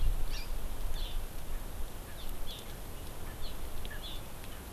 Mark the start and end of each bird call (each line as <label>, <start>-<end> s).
Erckel's Francolin (Pternistis erckelii), 0.3-0.4 s
Hawaii Amakihi (Chlorodrepanis virens), 0.3-0.5 s
Hawaii Amakihi (Chlorodrepanis virens), 1.0-1.2 s
Erckel's Francolin (Pternistis erckelii), 2.1-2.2 s
Hawaii Amakihi (Chlorodrepanis virens), 2.2-2.6 s
Erckel's Francolin (Pternistis erckelii), 3.3-3.4 s
Hawaii Amakihi (Chlorodrepanis virens), 3.4-3.6 s
Erckel's Francolin (Pternistis erckelii), 3.9-4.0 s
Hawaii Amakihi (Chlorodrepanis virens), 4.0-4.2 s